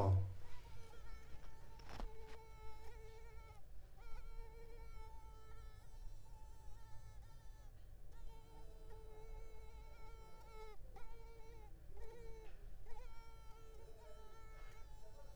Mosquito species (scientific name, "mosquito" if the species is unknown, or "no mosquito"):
Culex tigripes